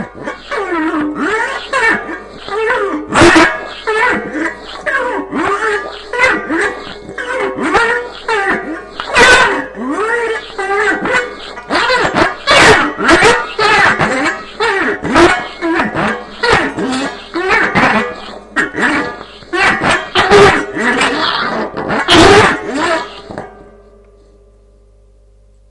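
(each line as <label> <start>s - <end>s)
Repeated high-pitched friction sounds between plastic and metal. 0.0s - 7.1s
A sharp and piercing metallic noise. 11.5s - 14.5s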